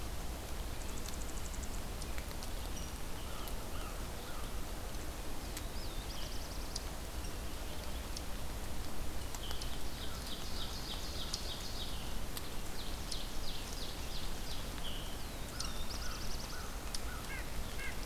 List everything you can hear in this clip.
Rose-breasted Grosbeak, American Crow, Black-throated Blue Warbler, Ovenbird, Red-breasted Nuthatch